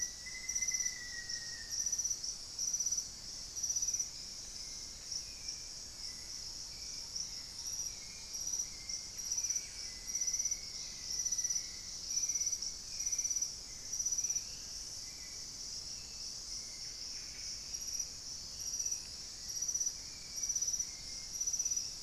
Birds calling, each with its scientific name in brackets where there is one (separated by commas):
Black-faced Antthrush (Formicarius analis), Hauxwell's Thrush (Turdus hauxwelli), Buff-breasted Wren (Cantorchilus leucotis)